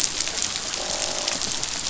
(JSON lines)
{"label": "biophony, croak", "recorder": "SoundTrap 500"}